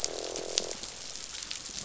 {"label": "biophony, croak", "recorder": "SoundTrap 500"}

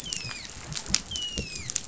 {"label": "biophony, dolphin", "recorder": "SoundTrap 500"}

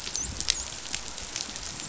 {"label": "biophony, dolphin", "recorder": "SoundTrap 500"}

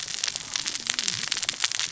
{"label": "biophony, cascading saw", "recorder": "SoundTrap 600 or HydroMoth"}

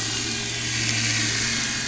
{"label": "anthrophony, boat engine", "recorder": "SoundTrap 500"}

